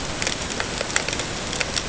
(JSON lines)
{"label": "ambient", "recorder": "HydroMoth"}